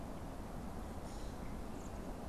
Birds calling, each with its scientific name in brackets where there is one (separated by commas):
Common Grackle (Quiscalus quiscula)